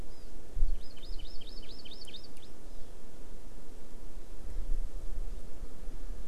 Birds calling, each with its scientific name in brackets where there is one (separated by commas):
Hawaii Amakihi (Chlorodrepanis virens)